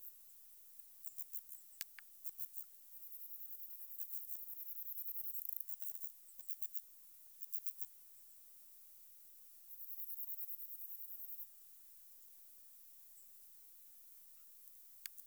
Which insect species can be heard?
Chorthippus jacobsi